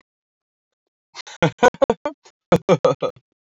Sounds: Laughter